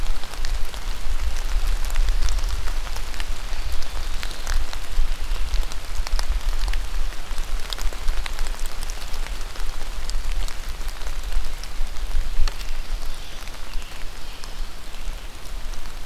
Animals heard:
forest ambience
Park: Marsh-Billings-Rockefeller National Historical Park